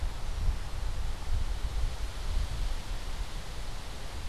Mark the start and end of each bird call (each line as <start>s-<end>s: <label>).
0.0s-0.9s: Red-winged Blackbird (Agelaius phoeniceus)